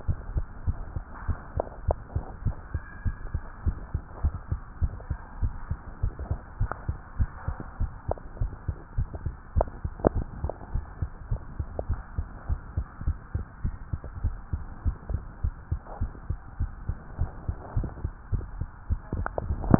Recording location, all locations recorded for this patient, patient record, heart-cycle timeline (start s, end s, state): tricuspid valve (TV)
aortic valve (AV)+pulmonary valve (PV)+tricuspid valve (TV)+mitral valve (MV)
#Age: Child
#Sex: Female
#Height: 126.0 cm
#Weight: 27.1 kg
#Pregnancy status: False
#Murmur: Absent
#Murmur locations: nan
#Most audible location: nan
#Systolic murmur timing: nan
#Systolic murmur shape: nan
#Systolic murmur grading: nan
#Systolic murmur pitch: nan
#Systolic murmur quality: nan
#Diastolic murmur timing: nan
#Diastolic murmur shape: nan
#Diastolic murmur grading: nan
#Diastolic murmur pitch: nan
#Diastolic murmur quality: nan
#Outcome: Normal
#Campaign: 2015 screening campaign
0.00	0.18	S1
0.18	0.32	systole
0.32	0.46	S2
0.46	0.66	diastole
0.66	0.80	S1
0.80	0.96	systole
0.96	1.06	S2
1.06	1.24	diastole
1.24	1.38	S1
1.38	1.54	systole
1.54	1.64	S2
1.64	1.84	diastole
1.84	1.98	S1
1.98	2.12	systole
2.12	2.22	S2
2.22	2.38	diastole
2.38	2.56	S1
2.56	2.70	systole
2.70	2.82	S2
2.82	3.02	diastole
3.02	3.16	S1
3.16	3.32	systole
3.32	3.42	S2
3.42	3.64	diastole
3.64	3.78	S1
3.78	3.92	systole
3.92	4.02	S2
4.02	4.22	diastole
4.22	4.34	S1
4.34	4.50	systole
4.50	4.62	S2
4.62	4.80	diastole
4.80	4.92	S1
4.92	5.08	systole
5.08	5.18	S2
5.18	5.38	diastole
5.38	5.52	S1
5.52	5.68	systole
5.68	5.78	S2
5.78	5.96	diastole
5.96	6.14	S1
6.14	6.28	systole
6.28	6.38	S2
6.38	6.58	diastole
6.58	6.68	S1
6.68	6.86	systole
6.86	6.96	S2
6.96	7.16	diastole
7.16	7.30	S1
7.30	7.46	systole
7.46	7.56	S2
7.56	7.78	diastole
7.78	7.90	S1
7.90	8.08	systole
8.08	8.16	S2
8.16	8.38	diastole
8.38	8.52	S1
8.52	8.66	systole
8.66	8.76	S2
8.76	8.96	diastole
8.96	9.08	S1
9.08	9.24	systole
9.24	9.34	S2
9.34	9.52	diastole
9.52	9.66	S1
9.66	9.82	systole
9.82	9.92	S2
9.92	10.12	diastole
10.12	10.26	S1
10.26	10.42	systole
10.42	10.52	S2
10.52	10.72	diastole
10.72	10.86	S1
10.86	11.00	systole
11.00	11.10	S2
11.10	11.30	diastole
11.30	11.40	S1
11.40	11.58	systole
11.58	11.68	S2
11.68	11.86	diastole
11.86	12.00	S1
12.00	12.16	systole
12.16	12.26	S2
12.26	12.46	diastole
12.46	12.60	S1
12.60	12.76	systole
12.76	12.86	S2
12.86	13.06	diastole
13.06	13.18	S1
13.18	13.34	systole
13.34	13.46	S2
13.46	13.62	diastole
13.62	13.76	S1
13.76	13.92	systole
13.92	14.02	S2
14.02	14.22	diastole
14.22	14.38	S1
14.38	14.52	systole
14.52	14.66	S2
14.66	14.84	diastole
14.84	14.98	S1
14.98	15.08	systole
15.08	15.22	S2
15.22	15.42	diastole
15.42	15.56	S1
15.56	15.70	systole
15.70	15.80	S2
15.80	16.00	diastole
16.00	16.12	S1
16.12	16.28	systole
16.28	16.40	S2
16.40	16.60	diastole
16.60	16.72	S1
16.72	16.88	systole
16.88	16.98	S2
16.98	17.18	diastole
17.18	17.32	S1
17.32	17.48	systole
17.48	17.58	S2
17.58	17.76	diastole
17.76	17.90	S1
17.90	18.04	systole
18.04	18.12	S2
18.12	18.30	diastole
18.30	18.42	S1
18.42	18.56	systole
18.56	18.68	S2
18.68	18.90	diastole
18.90	19.00	S1
19.00	19.14	systole
19.14	19.28	S2
19.28	19.44	diastole
19.44	19.58	S1